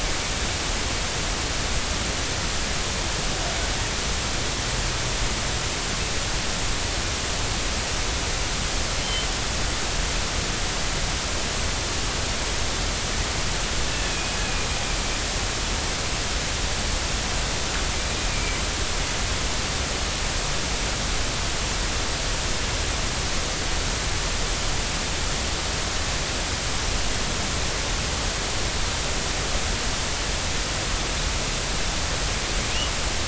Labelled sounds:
13.9	14.7	killer whale, northern resident, G clan, 2.4 to 2.8 kHz
18.3	18.6	killer whale, northern resident, G clan, 2.2 to 2.5 kHz

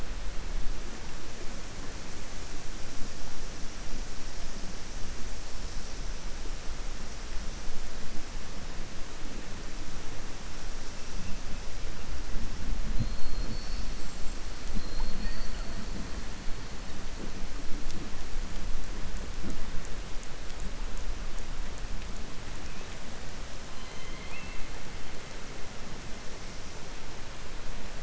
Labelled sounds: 23.7	24.6	killer whale, southern resident, 2.0 to 4.1 kHz

